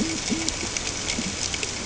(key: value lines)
label: ambient
recorder: HydroMoth